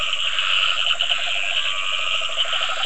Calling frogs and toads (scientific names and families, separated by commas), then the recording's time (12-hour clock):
Dendropsophus nahdereri (Hylidae), Rhinella icterica (Bufonidae), Scinax perereca (Hylidae), Sphaenorhynchus surdus (Hylidae)
7:30pm